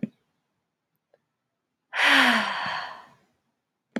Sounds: Sigh